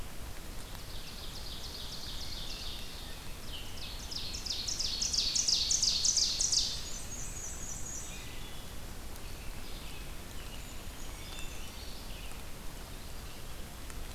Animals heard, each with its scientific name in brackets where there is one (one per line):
Black-and-white Warbler (Mniotilta varia)
Brown Creeper (Certhia americana)
Ovenbird (Seiurus aurocapilla)